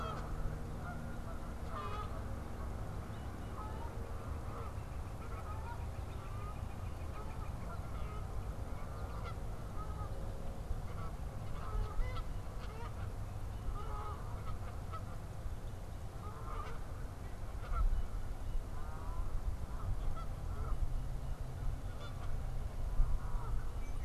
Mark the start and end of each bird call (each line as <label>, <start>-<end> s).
Canada Goose (Branta canadensis), 0.0-24.0 s
unidentified bird, 3.0-4.0 s
Northern Flicker (Colaptes auratus), 3.9-7.9 s